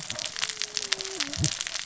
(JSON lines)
{"label": "biophony, cascading saw", "recorder": "SoundTrap 600 or HydroMoth"}